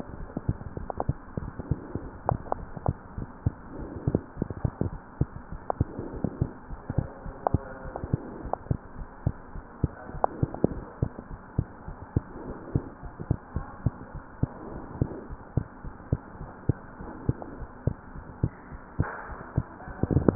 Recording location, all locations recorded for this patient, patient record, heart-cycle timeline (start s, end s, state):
pulmonary valve (PV)
aortic valve (AV)+pulmonary valve (PV)+tricuspid valve (TV)+mitral valve (MV)
#Age: Child
#Sex: Male
#Height: 84.0 cm
#Weight: 11.2 kg
#Pregnancy status: False
#Murmur: Absent
#Murmur locations: nan
#Most audible location: nan
#Systolic murmur timing: nan
#Systolic murmur shape: nan
#Systolic murmur grading: nan
#Systolic murmur pitch: nan
#Systolic murmur quality: nan
#Diastolic murmur timing: nan
#Diastolic murmur shape: nan
#Diastolic murmur grading: nan
#Diastolic murmur pitch: nan
#Diastolic murmur quality: nan
#Outcome: Normal
#Campaign: 2015 screening campaign
0.00	11.12	unannotated
11.12	11.30	diastole
11.30	11.40	S1
11.40	11.54	systole
11.54	11.68	S2
11.68	11.88	diastole
11.88	11.96	S1
11.96	12.12	systole
12.12	12.26	S2
12.26	12.46	diastole
12.46	12.58	S1
12.58	12.74	systole
12.74	12.86	S2
12.86	13.04	diastole
13.04	13.12	S1
13.12	13.26	systole
13.26	13.38	S2
13.38	13.54	diastole
13.54	13.68	S1
13.68	13.82	systole
13.82	13.96	S2
13.96	14.14	diastole
14.14	14.22	S1
14.22	14.38	systole
14.38	14.52	S2
14.52	14.72	diastole
14.72	14.86	S1
14.86	15.00	systole
15.00	15.14	S2
15.14	15.30	diastole
15.30	15.38	S1
15.38	15.56	systole
15.56	15.66	S2
15.66	15.86	diastole
15.86	15.94	S1
15.94	16.08	systole
16.08	16.20	S2
16.20	16.40	diastole
16.40	16.50	S1
16.50	16.64	systole
16.64	16.78	S2
16.78	17.00	diastole
17.00	17.10	S1
17.10	17.26	systole
17.26	17.38	S2
17.38	17.58	diastole
17.58	17.68	S1
17.68	17.82	systole
17.82	17.96	S2
17.96	18.16	diastole
18.16	18.24	S1
18.24	18.40	systole
18.40	18.52	S2
18.52	18.72	diastole
18.72	18.80	S1
18.80	18.96	systole
18.96	19.08	S2
19.08	19.30	diastole
19.30	19.40	S1
19.40	19.54	systole
19.54	19.64	S2
19.64	19.82	diastole
19.82	20.35	unannotated